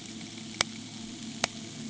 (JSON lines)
{"label": "anthrophony, boat engine", "recorder": "HydroMoth"}